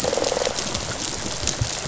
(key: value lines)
label: biophony, rattle response
recorder: SoundTrap 500